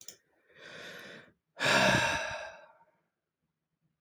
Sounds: Sigh